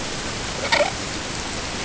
{"label": "ambient", "recorder": "HydroMoth"}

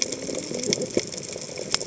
{"label": "biophony, cascading saw", "recorder": "HydroMoth"}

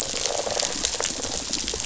{"label": "biophony", "recorder": "SoundTrap 500"}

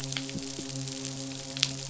{"label": "biophony, midshipman", "recorder": "SoundTrap 500"}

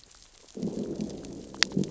{"label": "biophony, growl", "recorder": "SoundTrap 600 or HydroMoth"}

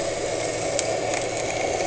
{"label": "anthrophony, boat engine", "recorder": "HydroMoth"}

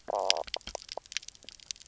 {"label": "biophony, knock croak", "recorder": "SoundTrap 300"}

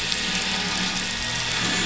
{"label": "anthrophony, boat engine", "recorder": "SoundTrap 500"}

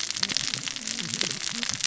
{"label": "biophony, cascading saw", "recorder": "SoundTrap 600 or HydroMoth"}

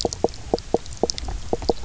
{"label": "biophony, knock croak", "recorder": "SoundTrap 300"}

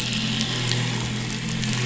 {"label": "anthrophony, boat engine", "recorder": "SoundTrap 500"}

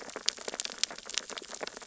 {"label": "biophony, sea urchins (Echinidae)", "recorder": "SoundTrap 600 or HydroMoth"}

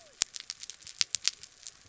{"label": "biophony", "recorder": "SoundTrap 300"}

